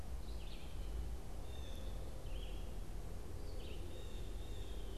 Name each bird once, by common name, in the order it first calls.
Blue Jay, Red-eyed Vireo